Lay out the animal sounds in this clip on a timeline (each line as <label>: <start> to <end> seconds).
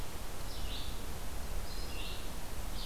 Red-eyed Vireo (Vireo olivaceus): 0.4 to 2.9 seconds